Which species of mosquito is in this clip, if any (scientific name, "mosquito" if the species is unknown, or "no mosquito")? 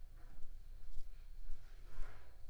Anopheles arabiensis